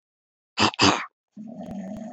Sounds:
Cough